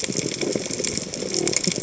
{"label": "biophony", "recorder": "HydroMoth"}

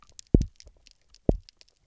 {"label": "biophony, double pulse", "recorder": "SoundTrap 300"}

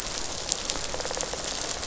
{"label": "biophony, rattle response", "recorder": "SoundTrap 500"}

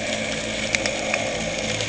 {"label": "anthrophony, boat engine", "recorder": "HydroMoth"}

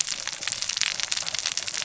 {"label": "biophony, cascading saw", "recorder": "SoundTrap 600 or HydroMoth"}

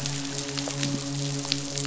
{"label": "biophony, midshipman", "recorder": "SoundTrap 500"}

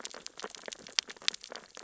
{"label": "biophony, sea urchins (Echinidae)", "recorder": "SoundTrap 600 or HydroMoth"}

